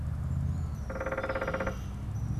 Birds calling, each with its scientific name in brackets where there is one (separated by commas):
European Starling (Sturnus vulgaris), unidentified bird, Red-winged Blackbird (Agelaius phoeniceus)